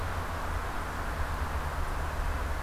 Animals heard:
forest ambience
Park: Marsh-Billings-Rockefeller National Historical Park